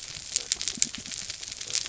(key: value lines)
label: biophony
recorder: SoundTrap 300